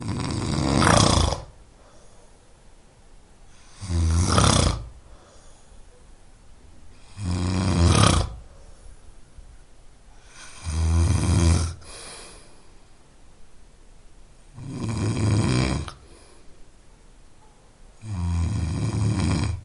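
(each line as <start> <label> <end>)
0.0 Someone is snoring intensely with pauses in between. 19.6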